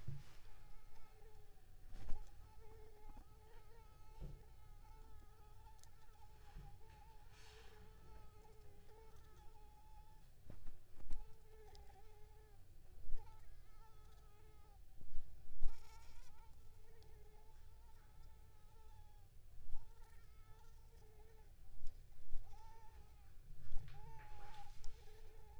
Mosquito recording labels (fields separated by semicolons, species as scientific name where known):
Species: Anopheles squamosus; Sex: female; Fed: unfed; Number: one; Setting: cup